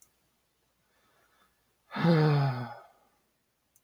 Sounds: Sigh